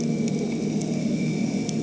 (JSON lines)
{"label": "anthrophony, boat engine", "recorder": "HydroMoth"}